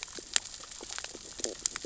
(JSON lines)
{"label": "biophony, stridulation", "recorder": "SoundTrap 600 or HydroMoth"}